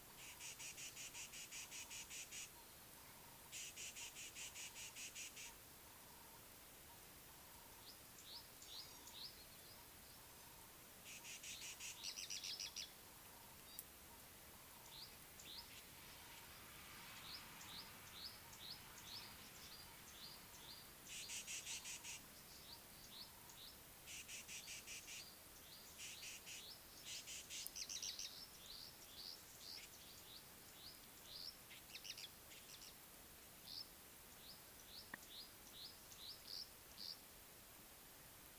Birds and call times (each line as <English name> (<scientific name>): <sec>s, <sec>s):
Rattling Cisticola (Cisticola chiniana): 1.6s, 11.5s, 21.6s, 27.1s
Tawny-flanked Prinia (Prinia subflava): 8.4s